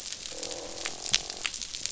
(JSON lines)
{"label": "biophony, croak", "recorder": "SoundTrap 500"}